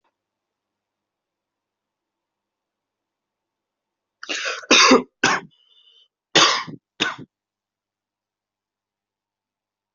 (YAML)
expert_labels:
- quality: good
  cough_type: dry
  dyspnea: false
  wheezing: false
  stridor: false
  choking: false
  congestion: false
  nothing: true
  diagnosis: lower respiratory tract infection
  severity: mild
age: 22
gender: male
respiratory_condition: true
fever_muscle_pain: false
status: symptomatic